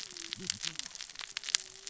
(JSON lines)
{"label": "biophony, cascading saw", "recorder": "SoundTrap 600 or HydroMoth"}